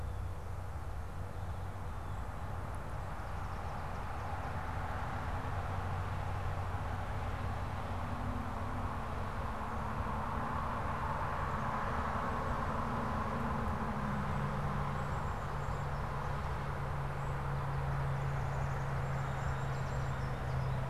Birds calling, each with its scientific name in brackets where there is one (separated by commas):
American Goldfinch (Spinus tristis), Black-capped Chickadee (Poecile atricapillus)